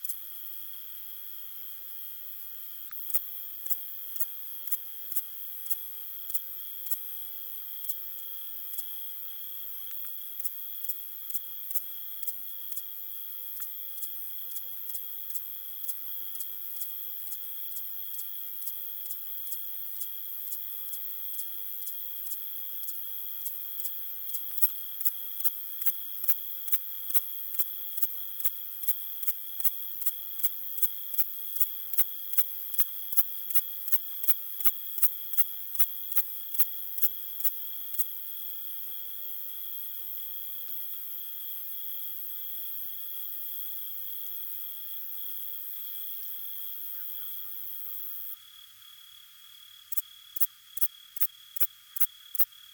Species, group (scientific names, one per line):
Thyreonotus corsicus
Orthoptera